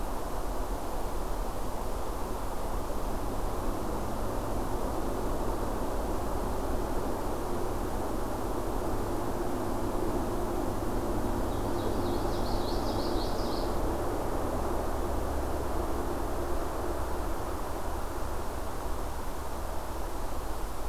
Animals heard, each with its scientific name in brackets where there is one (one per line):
Common Yellowthroat (Geothlypis trichas)